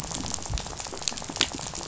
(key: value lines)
label: biophony, rattle
recorder: SoundTrap 500